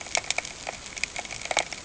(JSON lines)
{"label": "ambient", "recorder": "HydroMoth"}